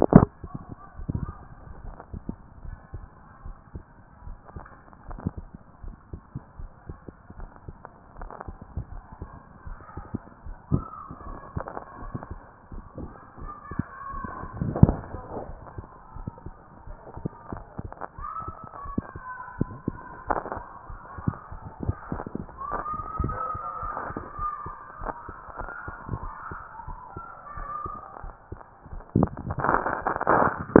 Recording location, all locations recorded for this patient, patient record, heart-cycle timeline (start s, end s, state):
tricuspid valve (TV)
aortic valve (AV)+pulmonary valve (PV)+tricuspid valve (TV)+mitral valve (MV)+mitral valve (MV)
#Age: Adolescent
#Sex: Female
#Height: 154.0 cm
#Weight: 44.2 kg
#Pregnancy status: False
#Murmur: Absent
#Murmur locations: nan
#Most audible location: nan
#Systolic murmur timing: nan
#Systolic murmur shape: nan
#Systolic murmur grading: nan
#Systolic murmur pitch: nan
#Systolic murmur quality: nan
#Diastolic murmur timing: nan
#Diastolic murmur shape: nan
#Diastolic murmur grading: nan
#Diastolic murmur pitch: nan
#Diastolic murmur quality: nan
#Outcome: Abnormal
#Campaign: 2014 screening campaign
0.00	1.59	unannotated
1.59	1.84	diastole
1.84	1.96	S1
1.96	2.12	systole
2.12	2.22	S2
2.22	2.64	diastole
2.64	2.76	S1
2.76	2.94	systole
2.94	3.04	S2
3.04	3.44	diastole
3.44	3.56	S1
3.56	3.74	systole
3.74	3.84	S2
3.84	4.26	diastole
4.26	4.38	S1
4.38	4.54	systole
4.54	4.64	S2
4.64	5.08	diastole
5.08	5.20	S1
5.20	5.38	systole
5.38	5.48	S2
5.48	5.84	diastole
5.84	5.96	S1
5.96	6.12	systole
6.12	6.22	S2
6.22	6.58	diastole
6.58	6.70	S1
6.70	6.88	systole
6.88	6.98	S2
6.98	7.38	diastole
7.38	7.50	S1
7.50	7.68	systole
7.68	7.76	S2
7.76	8.20	diastole
8.20	8.30	S1
8.30	8.46	systole
8.46	8.56	S2
8.56	8.76	diastole
8.76	30.80	unannotated